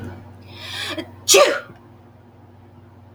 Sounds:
Sneeze